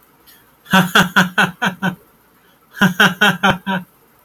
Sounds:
Laughter